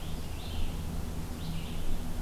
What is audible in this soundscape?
Scarlet Tanager, Red-eyed Vireo